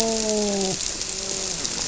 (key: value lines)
label: biophony, grouper
recorder: SoundTrap 300